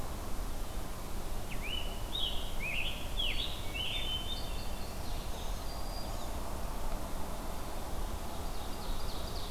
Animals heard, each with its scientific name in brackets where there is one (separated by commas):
Ovenbird (Seiurus aurocapilla), Scarlet Tanager (Piranga olivacea), Black-throated Green Warbler (Setophaga virens), Hermit Thrush (Catharus guttatus)